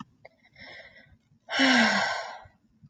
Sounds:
Sigh